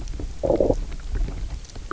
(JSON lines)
{"label": "biophony, low growl", "recorder": "SoundTrap 300"}